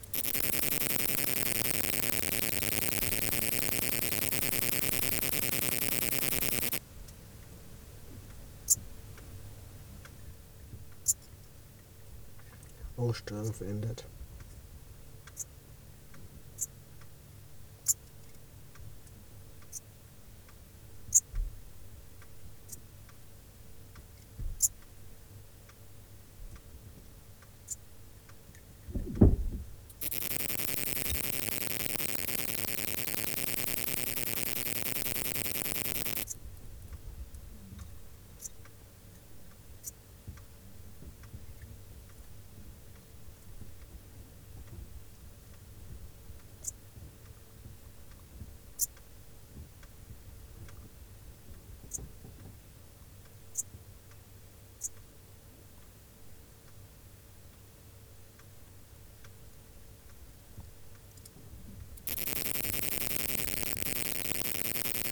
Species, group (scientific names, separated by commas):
Poecilimon ebneri, Orthoptera